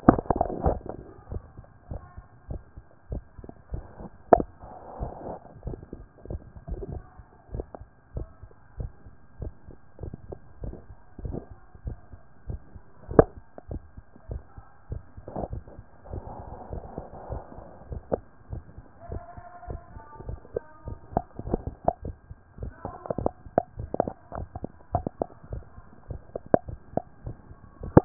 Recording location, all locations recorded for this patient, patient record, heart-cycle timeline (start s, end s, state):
tricuspid valve (TV)
aortic valve (AV)+pulmonary valve (PV)+tricuspid valve (TV)+mitral valve (MV)
#Age: nan
#Sex: Female
#Height: nan
#Weight: nan
#Pregnancy status: True
#Murmur: Absent
#Murmur locations: nan
#Most audible location: nan
#Systolic murmur timing: nan
#Systolic murmur shape: nan
#Systolic murmur grading: nan
#Systolic murmur pitch: nan
#Systolic murmur quality: nan
#Diastolic murmur timing: nan
#Diastolic murmur shape: nan
#Diastolic murmur grading: nan
#Diastolic murmur pitch: nan
#Diastolic murmur quality: nan
#Outcome: Normal
#Campaign: 2014 screening campaign
0.00	1.30	unannotated
1.30	1.42	S1
1.42	1.56	systole
1.56	1.66	S2
1.66	1.90	diastole
1.90	2.02	S1
2.02	2.16	systole
2.16	2.24	S2
2.24	2.48	diastole
2.48	2.62	S1
2.62	2.76	systole
2.76	2.84	S2
2.84	3.10	diastole
3.10	3.24	S1
3.24	3.38	systole
3.38	3.48	S2
3.48	3.72	diastole
3.72	3.84	S1
3.84	4.00	systole
4.00	4.10	S2
4.10	4.32	diastole
4.32	28.05	unannotated